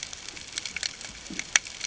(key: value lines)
label: ambient
recorder: HydroMoth